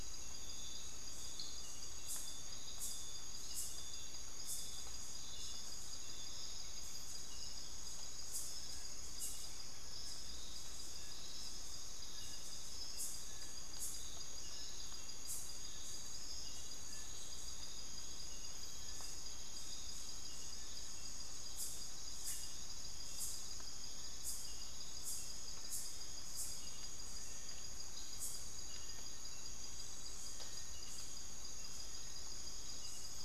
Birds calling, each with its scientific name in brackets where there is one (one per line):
Little Tinamou (Crypturellus soui)